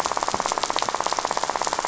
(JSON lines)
{"label": "biophony, rattle", "recorder": "SoundTrap 500"}